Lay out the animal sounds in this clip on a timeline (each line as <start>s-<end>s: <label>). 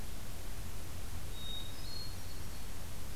1.2s-2.6s: Hermit Thrush (Catharus guttatus)